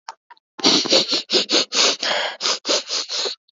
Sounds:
Sniff